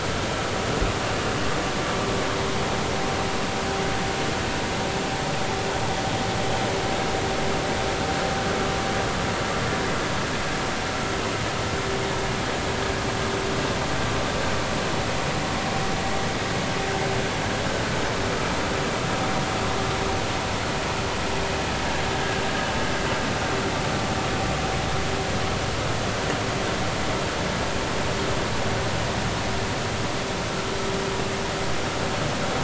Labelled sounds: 22.1	22.4	vessel noise, 1.5 to 1.7 kHz

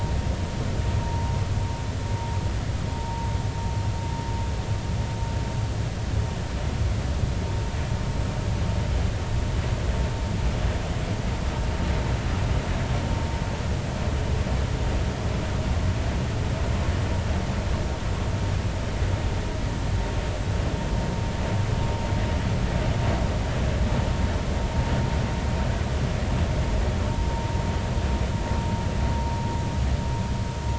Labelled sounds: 3.0	3.3	vessel noise, 0.80 to 0.96 kHz
27.3	27.6	vessel noise, 0.90 to 1.0 kHz

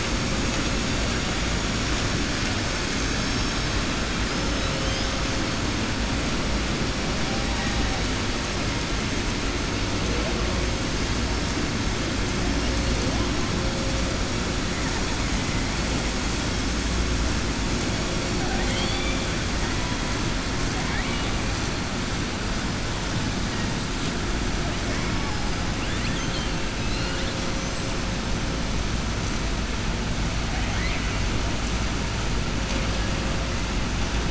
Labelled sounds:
18.4	19.2	killer whale, southern resident, 0.73 to 5.1 kHz
20.7	21.3	killer whale, southern resident, 0.75 to 3.7 kHz
25.7	26.6	killer whale, southern resident, 1.7 to 4.6 kHz
30.4	31.2	killer whale, southern resident, 1.5 to 4.2 kHz

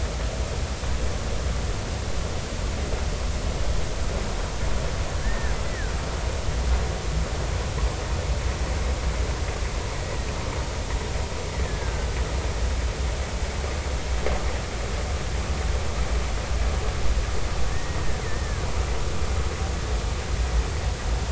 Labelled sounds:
5.2	5.9	killer whale, Bigg's (transient), 1.4 to 2.0 kHz
11.6	12.1	killer whale, Bigg's (transient), 1.5 to 1.9 kHz
17.7	18.7	killer whale, Bigg's (transient), 1.4 to 1.9 kHz

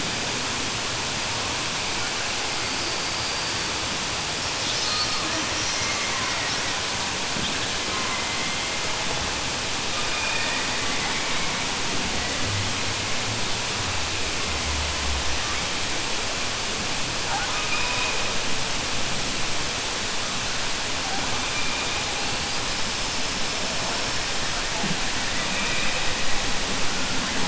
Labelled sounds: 5.8	6.7	killer whale, southern resident, 1.0 to 2.3 kHz
10.1	10.7	killer whale, southern resident, 0.91 to 3.4 kHz

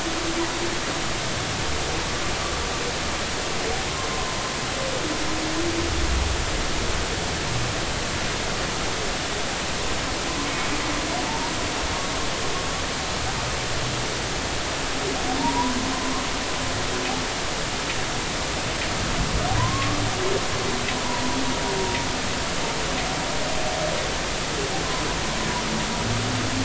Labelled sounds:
4.1	4.3	humpback whale, 0.93 to 1.1 kHz
11.3	11.5	humpback whale, 0.83 to 0.99 kHz
15.4	15.8	humpback whale, 0.86 to 1.1 kHz
19.6	20.0	humpback whale, 0.90 to 1.2 kHz

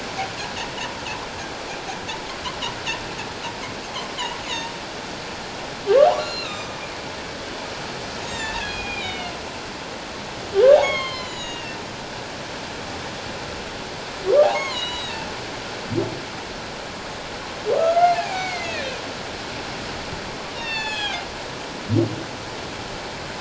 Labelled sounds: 4.1	4.4	humpback whale, 0.84 to 1.2 kHz
6.2	6.8	humpback whale, 2.4 to 7.0 kHz
8.2	9.3	humpback whale, 1.6 to 7.6 kHz
10.8	11.8	humpback whale, 0.97 to 7.3 kHz
14.5	15.2	humpback whale, 0.94 to 7.9 kHz
17.7	18.9	humpback whale, 0.78 to 6.8 kHz
20.5	21.2	humpback whale, 1.5 to 7.1 kHz

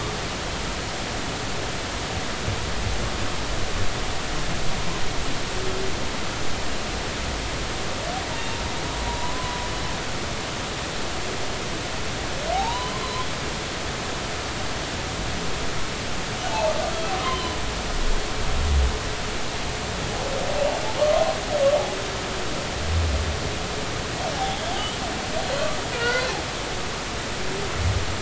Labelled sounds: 8.3	8.6	humpback whale, 2.7 to 2.8 kHz
9.1	9.6	humpback whale, 0.90 to 1.1 kHz
12.5	13.3	humpback whale, 0.80 to 4.1 kHz
17.2	17.6	humpback whale, 0.96 to 1.1 kHz
24.3	24.6	humpback whale, 0.80 to 0.90 kHz
25.4	26.4	humpback whale, 1.3 to 4.2 kHz

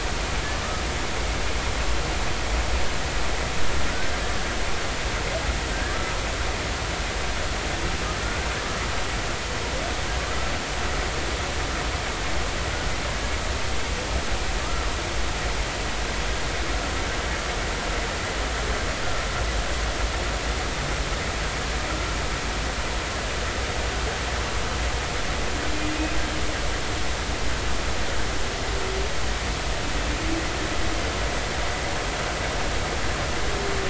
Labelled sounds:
5.7	6.0	humpback whale, 1.5 to 1.8 kHz

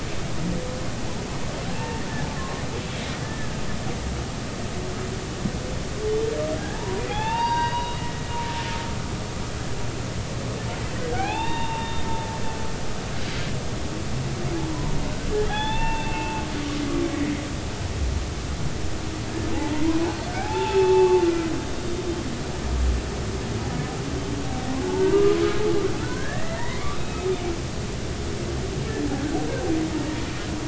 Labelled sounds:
1.7	2.0	humpback whale, 0.83 to 2.8 kHz
3.2	3.5	humpback whale, 1.7 to 1.8 kHz
6.1	8.0	humpback whale, 0.80 to 4.8 kHz
11.1	12.0	humpback whale, 0.80 to 3.8 kHz
15.4	16.5	humpback whale, 0.80 to 3.7 kHz
20.4	21.2	humpback whale, 0.80 to 2.7 kHz
24.9	27.3	humpback whale, 0.83 to 2.9 kHz

